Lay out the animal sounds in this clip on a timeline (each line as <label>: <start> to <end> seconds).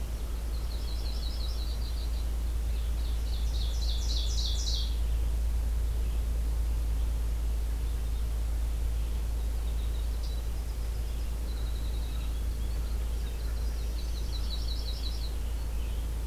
American Crow (Corvus brachyrhynchos): 0.0 to 1.4 seconds
Red-eyed Vireo (Vireo olivaceus): 0.0 to 16.3 seconds
Yellow-rumped Warbler (Setophaga coronata): 0.5 to 2.2 seconds
Ovenbird (Seiurus aurocapilla): 2.7 to 5.1 seconds
Winter Wren (Troglodytes hiemalis): 9.0 to 14.3 seconds
Black-throated Green Warbler (Setophaga virens): 13.6 to 14.8 seconds
Yellow-rumped Warbler (Setophaga coronata): 14.0 to 15.3 seconds
American Robin (Turdus migratorius): 15.3 to 16.3 seconds